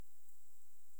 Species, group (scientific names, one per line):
Leptophyes punctatissima
Orthoptera